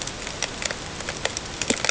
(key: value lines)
label: ambient
recorder: HydroMoth